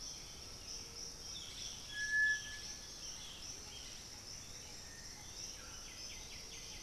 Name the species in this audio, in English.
Undulated Tinamou, Black-billed Thrush, Boat-billed Flycatcher, White-winged Becard